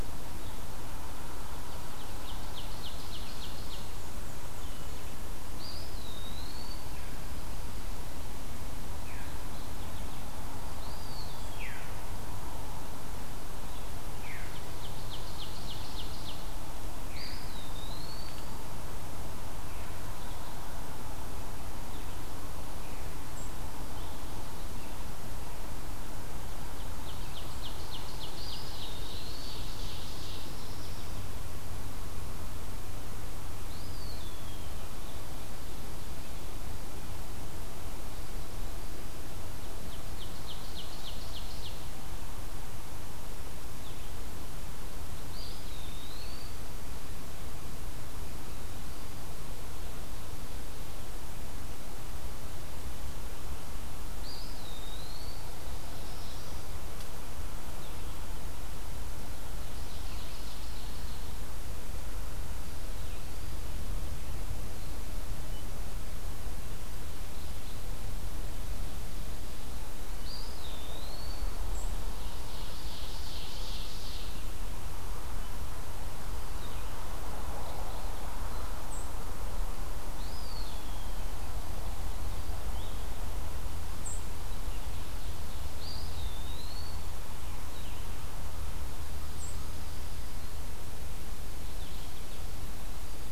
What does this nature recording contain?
Ovenbird, Black-and-white Warbler, Eastern Wood-Pewee, Veery, Mourning Warbler, Black-throated Blue Warbler, Blue-headed Vireo, White-throated Sparrow